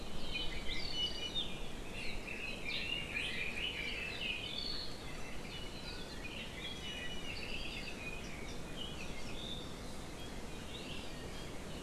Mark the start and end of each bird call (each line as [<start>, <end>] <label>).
[0.20, 1.60] Iiwi (Drepanis coccinea)
[1.90, 4.60] Red-billed Leiothrix (Leiothrix lutea)
[6.80, 7.30] Iiwi (Drepanis coccinea)
[7.40, 8.00] Apapane (Himatione sanguinea)